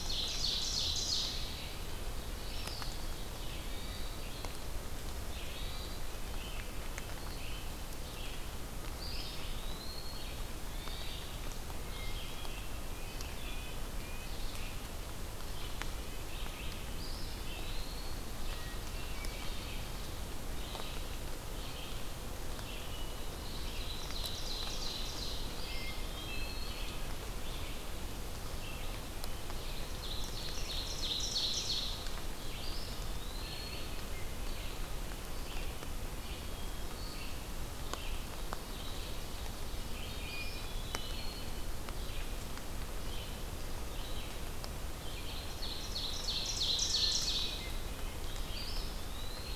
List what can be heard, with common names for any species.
Ovenbird, Hermit Thrush, Red-eyed Vireo, Eastern Wood-Pewee